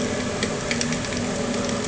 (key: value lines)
label: anthrophony, boat engine
recorder: HydroMoth